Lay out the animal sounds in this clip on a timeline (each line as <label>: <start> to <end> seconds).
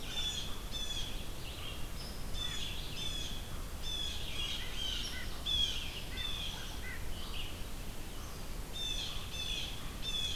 American Crow (Corvus brachyrhynchos): 0.0 to 10.4 seconds
Red-eyed Vireo (Vireo olivaceus): 0.0 to 10.4 seconds
Blue Jay (Cyanocitta cristata): 0.0 to 1.1 seconds
Blue Jay (Cyanocitta cristata): 2.3 to 3.5 seconds
Blue Jay (Cyanocitta cristata): 3.8 to 5.0 seconds
Blue Jay (Cyanocitta cristata): 5.4 to 6.8 seconds
Blue Jay (Cyanocitta cristata): 8.8 to 9.7 seconds